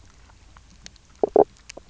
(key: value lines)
label: biophony, knock croak
recorder: SoundTrap 300